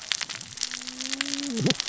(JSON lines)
{"label": "biophony, cascading saw", "recorder": "SoundTrap 600 or HydroMoth"}